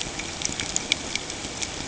{"label": "ambient", "recorder": "HydroMoth"}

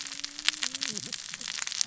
{"label": "biophony, cascading saw", "recorder": "SoundTrap 600 or HydroMoth"}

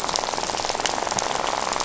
{"label": "biophony, rattle", "recorder": "SoundTrap 500"}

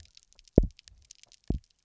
{"label": "biophony, double pulse", "recorder": "SoundTrap 300"}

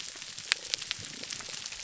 {"label": "biophony", "recorder": "SoundTrap 300"}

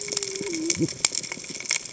{"label": "biophony, cascading saw", "recorder": "HydroMoth"}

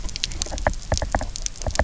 {"label": "biophony, knock", "recorder": "SoundTrap 300"}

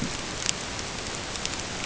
{"label": "ambient", "recorder": "HydroMoth"}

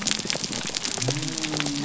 {"label": "biophony", "recorder": "SoundTrap 300"}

